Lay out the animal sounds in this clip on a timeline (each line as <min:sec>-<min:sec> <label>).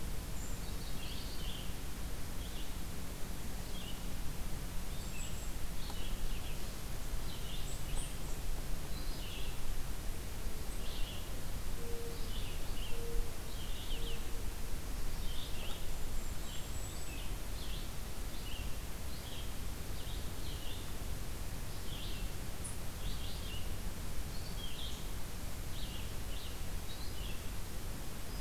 0:00.0-0:28.4 Red-eyed Vireo (Vireo olivaceus)
0:04.8-0:05.6 Golden-crowned Kinglet (Regulus satrapa)
0:11.6-0:14.5 Mourning Dove (Zenaida macroura)
0:15.8-0:17.3 Golden-crowned Kinglet (Regulus satrapa)